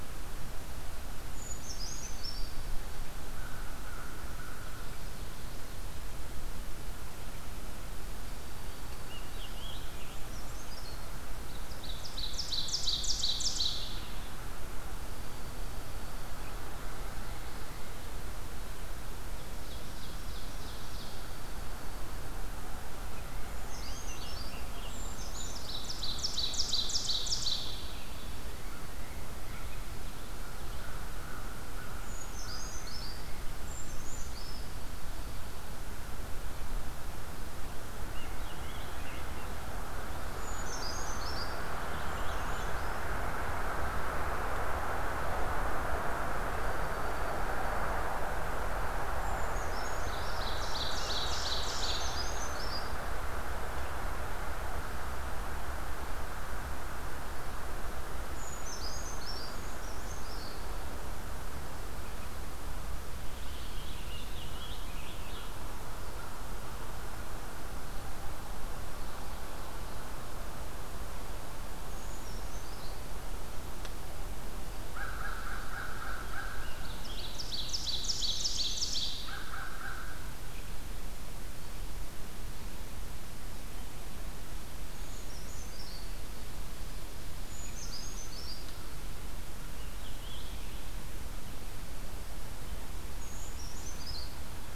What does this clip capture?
Brown Creeper, American Crow, Scarlet Tanager, Ovenbird, Dark-eyed Junco, Common Yellowthroat, Purple Finch